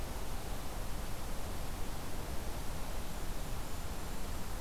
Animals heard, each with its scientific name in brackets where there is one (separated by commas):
Golden-crowned Kinglet (Regulus satrapa)